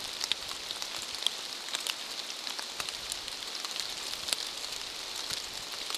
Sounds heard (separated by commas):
rain